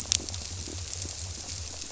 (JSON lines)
{"label": "biophony", "recorder": "SoundTrap 300"}